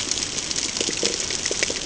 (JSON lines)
{"label": "ambient", "recorder": "HydroMoth"}